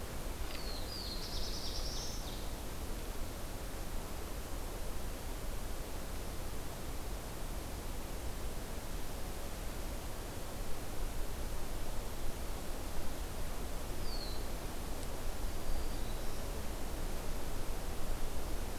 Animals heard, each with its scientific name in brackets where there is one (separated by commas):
Black-throated Blue Warbler (Setophaga caerulescens), Ovenbird (Seiurus aurocapilla), Black-throated Green Warbler (Setophaga virens)